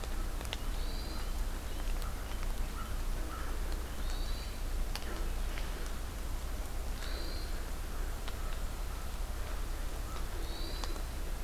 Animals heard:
Hermit Thrush (Catharus guttatus)
American Crow (Corvus brachyrhynchos)

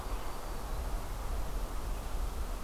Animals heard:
Black-throated Green Warbler (Setophaga virens)

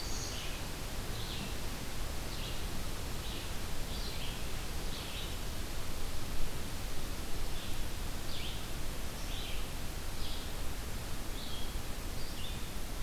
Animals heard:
Red-eyed Vireo (Vireo olivaceus)

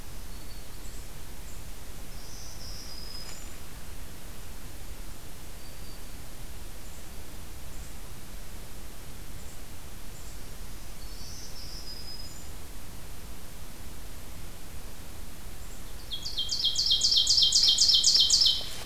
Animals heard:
Black-throated Green Warbler (Setophaga virens)
Ovenbird (Seiurus aurocapilla)

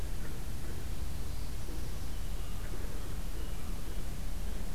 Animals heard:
Northern Parula (Setophaga americana)

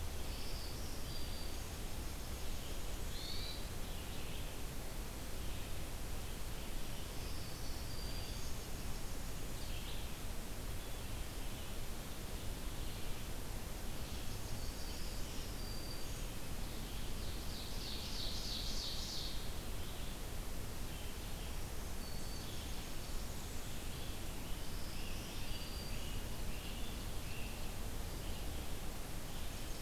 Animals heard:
Black-throated Green Warbler (Setophaga virens)
Ovenbird (Seiurus aurocapilla)
Hermit Thrush (Catharus guttatus)
Nashville Warbler (Leiothlypis ruficapilla)
Red-eyed Vireo (Vireo olivaceus)
Great Crested Flycatcher (Myiarchus crinitus)

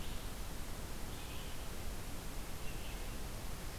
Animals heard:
Red-eyed Vireo (Vireo olivaceus)

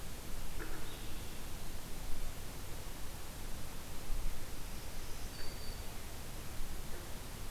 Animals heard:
Black-throated Green Warbler (Setophaga virens)

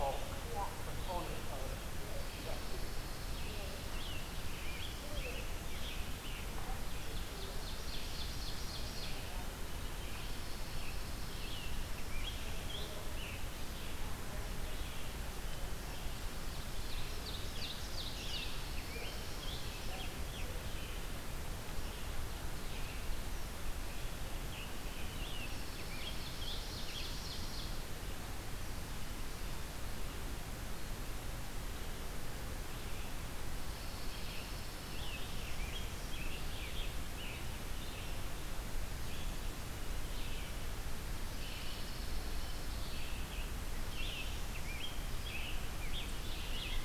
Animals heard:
Ovenbird (Seiurus aurocapilla)
Scarlet Tanager (Piranga olivacea)
Red-eyed Vireo (Vireo olivaceus)
Pine Warbler (Setophaga pinus)

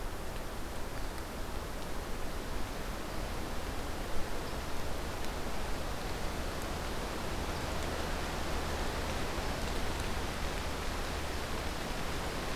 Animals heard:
unidentified call

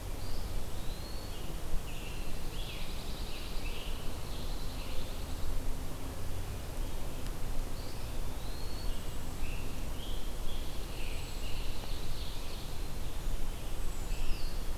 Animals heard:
Ovenbird (Seiurus aurocapilla)
Scarlet Tanager (Piranga olivacea)
Eastern Wood-Pewee (Contopus virens)
Pine Warbler (Setophaga pinus)

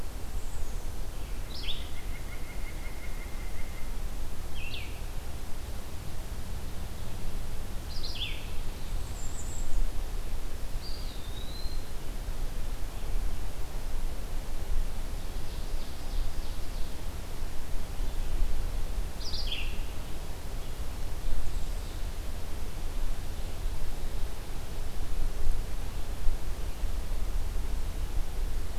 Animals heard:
White-breasted Nuthatch (Sitta carolinensis)
Blue-headed Vireo (Vireo solitarius)
Eastern Wood-Pewee (Contopus virens)
Bay-breasted Warbler (Setophaga castanea)
Ovenbird (Seiurus aurocapilla)

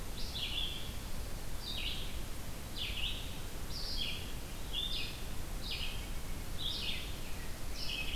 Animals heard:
Red-eyed Vireo (Vireo olivaceus)

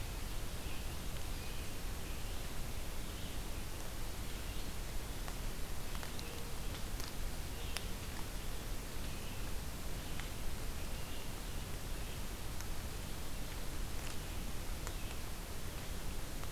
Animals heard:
Red-eyed Vireo (Vireo olivaceus)

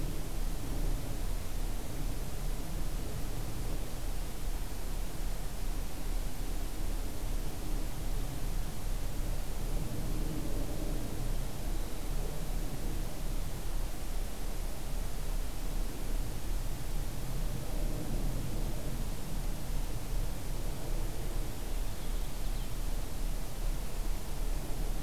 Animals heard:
Purple Finch (Haemorhous purpureus)

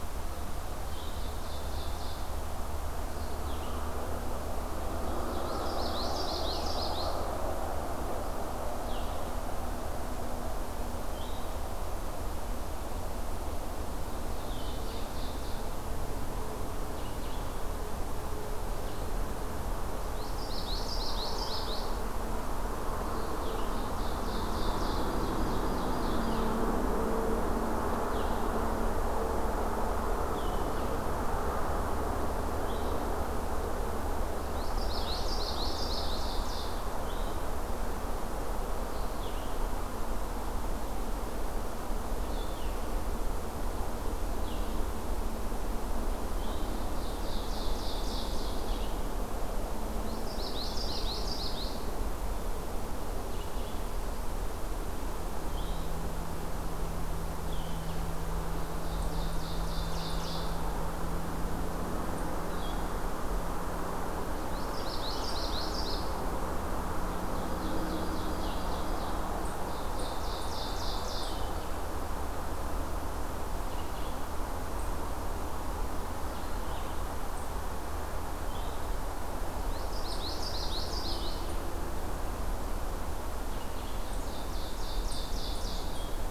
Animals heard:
Blue-headed Vireo (Vireo solitarius)
Ovenbird (Seiurus aurocapilla)
Common Yellowthroat (Geothlypis trichas)

